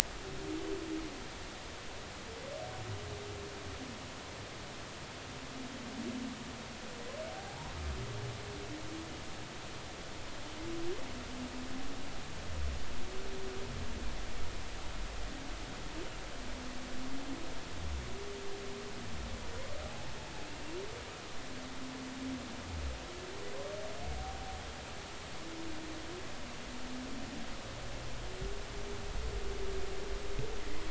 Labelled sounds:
7.3	7.8	humpback whale, 0.80 to 1.1 kHz
19.9	20.1	humpback whale, 0.80 to 0.93 kHz

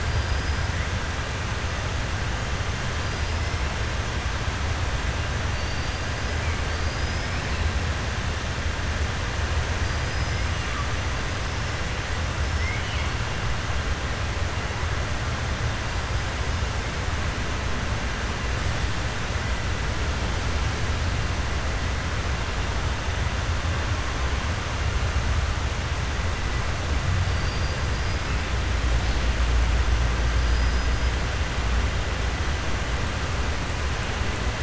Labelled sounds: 0.0	0.6	killer whale, 4.7 to 5.1 kHz
5.5	6.0	killer whale, 4.5 to 4.8 kHz
6.7	7.4	killer whale, 4.5 to 5.3 kHz
9.8	10.4	killer whale, 4.7 to 5.2 kHz
12.5	13.1	killer whale, 2.0 to 3.3 kHz
30.4	30.9	killer whale, 4.8 to 6.0 kHz

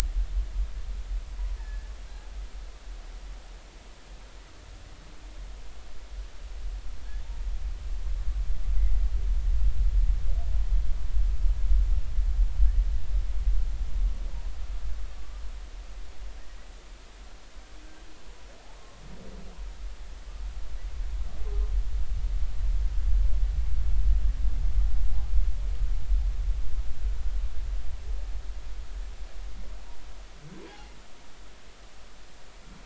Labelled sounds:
1.6	1.9	humpback whale, 1.6 to 1.9 kHz
18.8	19.0	humpback whale, 1.0 to 1.1 kHz
30.7	31.0	humpback whale, 0.80 to 0.99 kHz

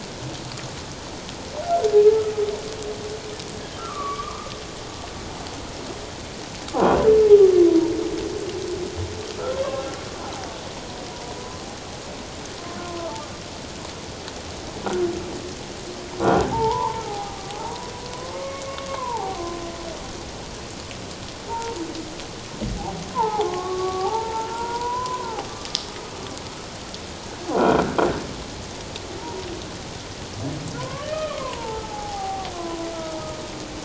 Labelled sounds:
3.7	4.5	humpback whale, 0.94 to 2.5 kHz
12.8	13.1	humpback whale, 0.97 to 1.1 kHz
16.2	16.5	croaking sound likely from a nearby submerged object, 1.3 to 1.6 kHz
16.5	17.9	humpback whale, 0.78 to 1.2 kHz
18.3	19.4	humpback whale, 0.78 to 2.3 kHz
21.5	21.8	humpback whale, 0.84 to 1.0 kHz
23.1	25.5	humpback whale, 0.78 to 1.5 kHz
27.7	28.0	croaking sound likely from a nearby submerged object, 1.4 to 1.7 kHz
30.8	32.9	humpback whale, 0.78 to 2.6 kHz

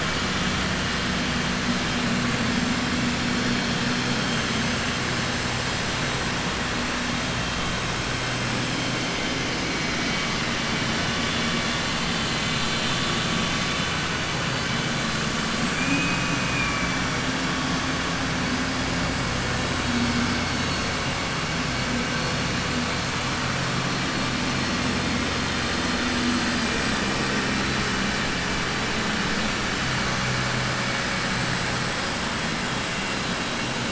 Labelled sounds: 15.7	17.0	vessel noise, 1.7 to 2.9 kHz

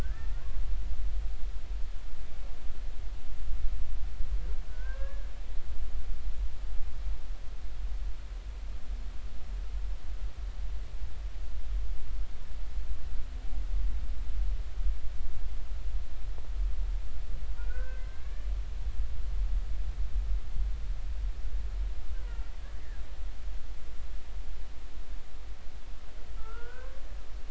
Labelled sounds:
0.0	0.4	humpback whale, 1.4 to 1.9 kHz
4.7	5.3	humpback whale, 0.99 to 1.8 kHz
17.6	18.5	humpback whale, 1.3 to 1.8 kHz
22.1	22.5	humpback whale, 0.86 to 1.1 kHz
26.4	27.0	humpback whale, 1.2 to 1.7 kHz

